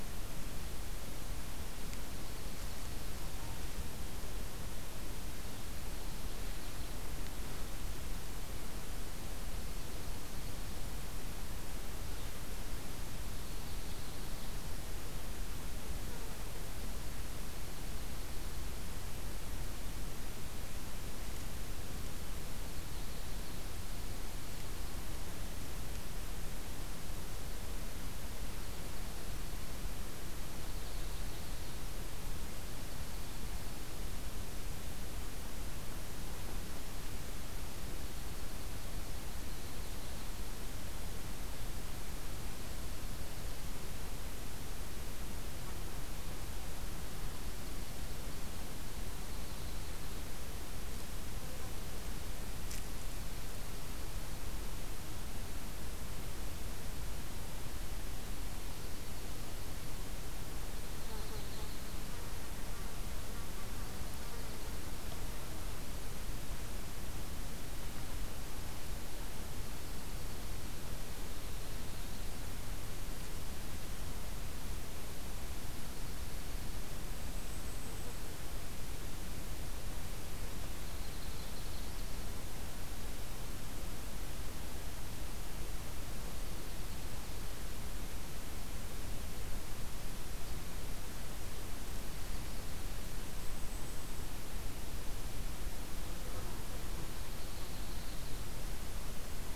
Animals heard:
Dark-eyed Junco (Junco hyemalis)
Yellow-rumped Warbler (Setophaga coronata)
Golden-crowned Kinglet (Regulus satrapa)

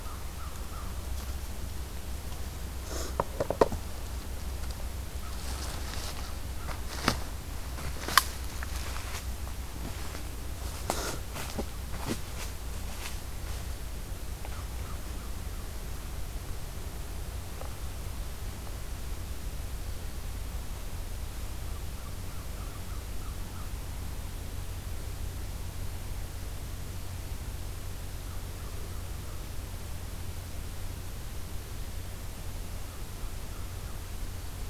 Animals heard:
American Crow (Corvus brachyrhynchos)

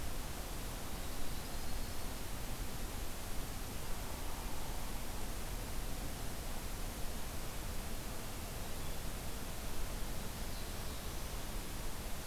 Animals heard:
Black-throated Blue Warbler (Setophaga caerulescens)
Yellow-rumped Warbler (Setophaga coronata)
Hairy Woodpecker (Dryobates villosus)

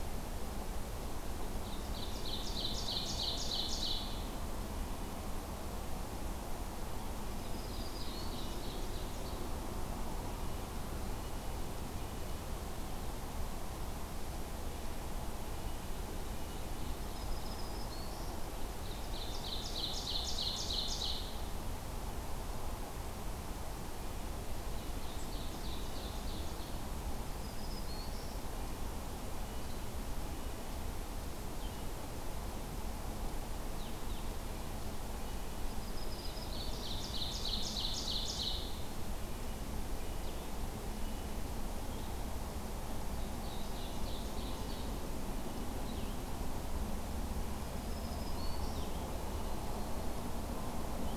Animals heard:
Red-breasted Nuthatch (Sitta canadensis)
Black-throated Green Warbler (Setophaga virens)
Ovenbird (Seiurus aurocapilla)
Blue-headed Vireo (Vireo solitarius)

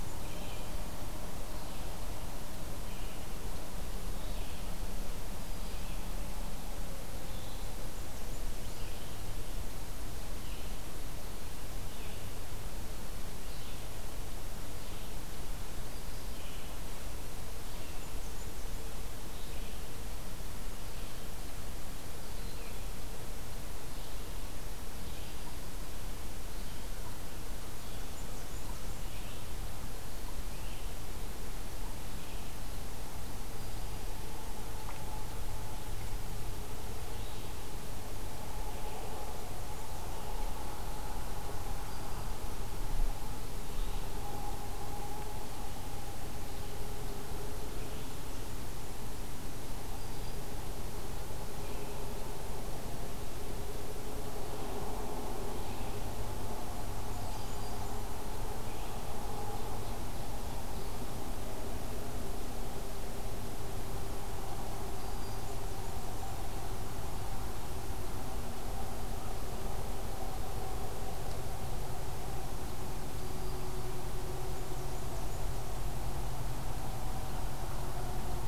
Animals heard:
Blackburnian Warbler (Setophaga fusca)
Red-eyed Vireo (Vireo olivaceus)
Broad-winged Hawk (Buteo platypterus)
Black-throated Green Warbler (Setophaga virens)
American Crow (Corvus brachyrhynchos)

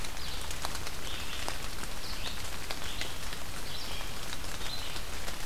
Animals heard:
Red-eyed Vireo (Vireo olivaceus)

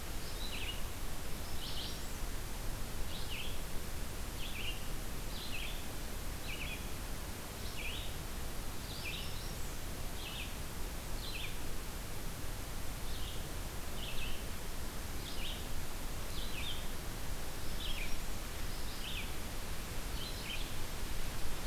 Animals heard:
American Redstart (Setophaga ruticilla)
Red-eyed Vireo (Vireo olivaceus)

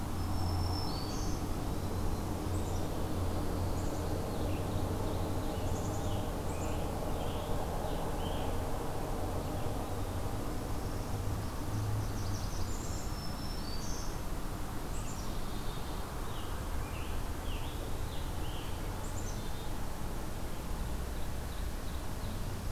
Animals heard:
Blackburnian Warbler (Setophaga fusca)
Black-throated Green Warbler (Setophaga virens)
Scarlet Tanager (Piranga olivacea)
Black-capped Chickadee (Poecile atricapillus)
Ovenbird (Seiurus aurocapilla)

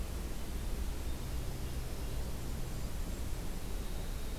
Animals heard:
Golden-crowned Kinglet (Regulus satrapa)
Winter Wren (Troglodytes hiemalis)

